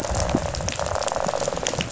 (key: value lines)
label: biophony, rattle
recorder: SoundTrap 500